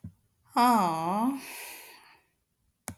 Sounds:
Sigh